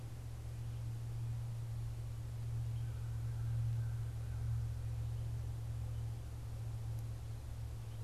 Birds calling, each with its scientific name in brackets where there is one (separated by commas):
American Crow (Corvus brachyrhynchos)